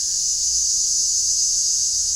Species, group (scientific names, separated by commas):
Chremistica ochracea, Cicadidae